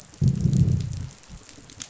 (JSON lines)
{"label": "biophony, growl", "recorder": "SoundTrap 500"}